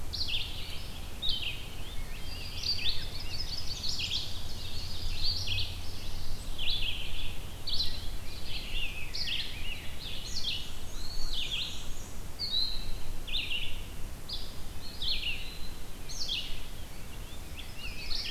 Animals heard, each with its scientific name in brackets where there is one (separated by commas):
Ovenbird (Seiurus aurocapilla), Red-eyed Vireo (Vireo olivaceus), Black-and-white Warbler (Mniotilta varia), Chestnut-sided Warbler (Setophaga pensylvanica), Rose-breasted Grosbeak (Pheucticus ludovicianus), Eastern Wood-Pewee (Contopus virens)